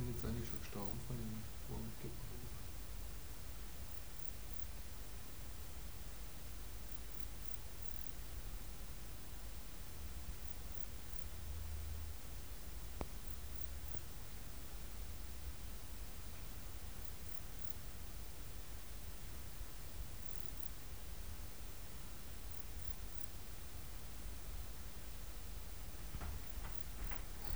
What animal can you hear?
Modestana ebneri, an orthopteran